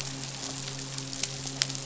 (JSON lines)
{"label": "biophony, midshipman", "recorder": "SoundTrap 500"}